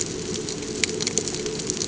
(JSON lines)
{"label": "ambient", "recorder": "HydroMoth"}